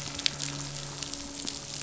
{"label": "biophony, midshipman", "recorder": "SoundTrap 500"}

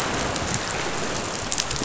{"label": "biophony", "recorder": "SoundTrap 500"}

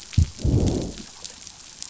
{"label": "biophony, growl", "recorder": "SoundTrap 500"}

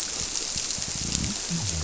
{"label": "biophony", "recorder": "SoundTrap 300"}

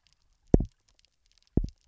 {"label": "biophony, double pulse", "recorder": "SoundTrap 300"}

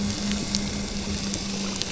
{"label": "biophony", "recorder": "SoundTrap 300"}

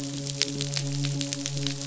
{"label": "biophony, midshipman", "recorder": "SoundTrap 500"}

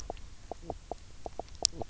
{"label": "biophony, knock croak", "recorder": "SoundTrap 300"}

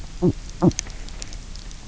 {"label": "biophony", "recorder": "SoundTrap 300"}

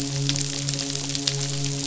{"label": "biophony, midshipman", "recorder": "SoundTrap 500"}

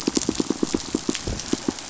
{"label": "biophony, pulse", "recorder": "SoundTrap 500"}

